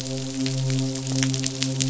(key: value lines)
label: biophony, midshipman
recorder: SoundTrap 500